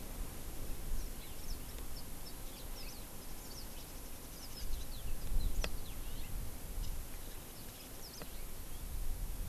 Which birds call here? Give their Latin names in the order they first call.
Crithagra mozambica, Leiothrix lutea, Haemorhous mexicanus, Zosterops japonicus